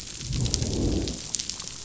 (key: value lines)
label: biophony, growl
recorder: SoundTrap 500